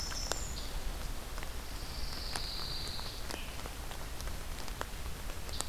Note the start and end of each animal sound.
[0.00, 1.02] Winter Wren (Troglodytes hiemalis)
[0.00, 5.69] Scarlet Tanager (Piranga olivacea)
[1.35, 3.59] Pine Warbler (Setophaga pinus)

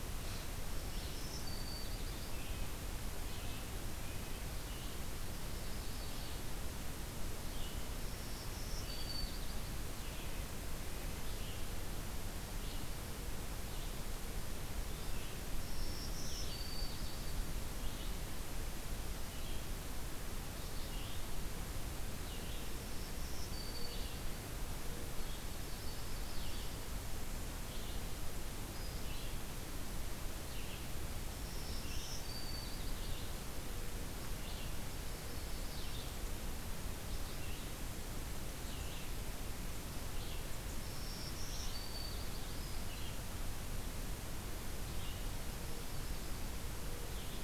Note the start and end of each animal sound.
[0.00, 47.44] Red-eyed Vireo (Vireo olivaceus)
[0.71, 2.42] Black-throated Green Warbler (Setophaga virens)
[5.30, 6.57] Yellow-rumped Warbler (Setophaga coronata)
[7.85, 9.49] Black-throated Green Warbler (Setophaga virens)
[10.74, 11.44] Red-breasted Nuthatch (Sitta canadensis)
[15.61, 17.26] Black-throated Green Warbler (Setophaga virens)
[22.61, 24.06] Black-throated Green Warbler (Setophaga virens)
[25.57, 26.75] Yellow-rumped Warbler (Setophaga coronata)
[31.29, 33.00] Black-throated Green Warbler (Setophaga virens)
[34.65, 35.96] Yellow-rumped Warbler (Setophaga coronata)
[40.71, 42.28] Black-throated Green Warbler (Setophaga virens)
[45.49, 46.90] Yellow-rumped Warbler (Setophaga coronata)

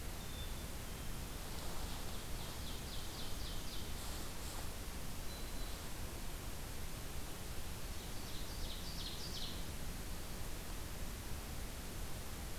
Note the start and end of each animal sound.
[0.00, 1.29] Black-capped Chickadee (Poecile atricapillus)
[1.07, 4.07] Ovenbird (Seiurus aurocapilla)
[5.07, 5.95] Black-throated Green Warbler (Setophaga virens)
[7.64, 9.73] Ovenbird (Seiurus aurocapilla)

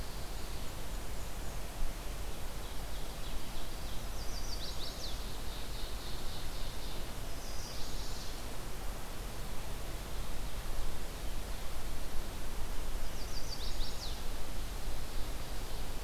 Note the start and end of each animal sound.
[0.18, 1.71] Black-and-white Warbler (Mniotilta varia)
[2.45, 4.13] Ovenbird (Seiurus aurocapilla)
[3.89, 5.18] Chestnut-sided Warbler (Setophaga pensylvanica)
[4.94, 7.17] Ovenbird (Seiurus aurocapilla)
[7.29, 8.48] Chestnut-sided Warbler (Setophaga pensylvanica)
[9.72, 11.80] Ovenbird (Seiurus aurocapilla)
[13.02, 14.39] Chestnut-sided Warbler (Setophaga pensylvanica)

